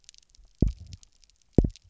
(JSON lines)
{"label": "biophony, double pulse", "recorder": "SoundTrap 300"}